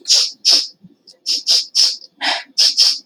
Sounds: Sniff